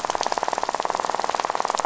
{"label": "biophony, rattle", "recorder": "SoundTrap 500"}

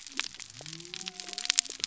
{"label": "biophony", "recorder": "SoundTrap 300"}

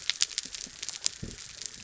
{"label": "biophony", "recorder": "SoundTrap 300"}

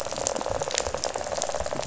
{"label": "biophony, rattle", "recorder": "SoundTrap 500"}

